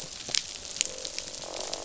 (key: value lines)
label: biophony, croak
recorder: SoundTrap 500